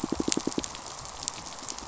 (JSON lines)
{"label": "biophony, pulse", "recorder": "SoundTrap 500"}